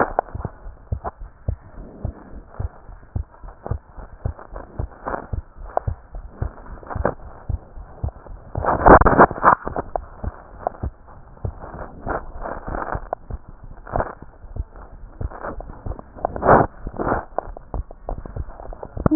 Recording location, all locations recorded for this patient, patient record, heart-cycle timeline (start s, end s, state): pulmonary valve (PV)
aortic valve (AV)+pulmonary valve (PV)+tricuspid valve (TV)+mitral valve (MV)
#Age: Child
#Sex: Female
#Height: 136.0 cm
#Weight: 28.0 kg
#Pregnancy status: False
#Murmur: Absent
#Murmur locations: nan
#Most audible location: nan
#Systolic murmur timing: nan
#Systolic murmur shape: nan
#Systolic murmur grading: nan
#Systolic murmur pitch: nan
#Systolic murmur quality: nan
#Diastolic murmur timing: nan
#Diastolic murmur shape: nan
#Diastolic murmur grading: nan
#Diastolic murmur pitch: nan
#Diastolic murmur quality: nan
#Outcome: Normal
#Campaign: 2015 screening campaign
0.00	1.17	unannotated
1.17	1.30	S1
1.30	1.46	systole
1.46	1.60	S2
1.60	1.78	diastole
1.78	1.88	S1
1.88	2.02	systole
2.02	2.16	S2
2.16	2.34	diastole
2.34	2.42	S1
2.42	2.58	systole
2.58	2.72	S2
2.72	2.90	diastole
2.90	2.98	S1
2.98	3.14	systole
3.14	3.28	S2
3.28	3.44	diastole
3.44	3.52	S1
3.52	3.70	systole
3.70	3.82	S2
3.82	3.98	diastole
3.98	4.08	S1
4.08	4.24	systole
4.24	4.38	S2
4.38	4.56	diastole
4.56	4.64	S1
4.64	4.78	systole
4.78	4.92	S2
4.92	5.08	diastole
5.08	5.18	S1
5.18	5.32	systole
5.32	5.46	S2
5.46	5.62	diastole
5.62	5.72	S1
5.72	5.86	systole
5.86	5.96	S2
5.96	6.14	diastole
6.14	6.24	S1
6.24	6.40	systole
6.40	6.54	S2
6.54	6.70	diastole
6.70	6.80	S1
6.80	6.94	systole
6.94	7.06	S2
7.06	7.24	diastole
7.24	7.32	S1
7.32	7.48	systole
7.48	7.62	S2
7.62	7.78	diastole
7.78	7.88	S1
7.88	8.02	systole
8.02	8.12	S2
8.12	8.30	diastole
8.30	8.40	S1
8.40	19.15	unannotated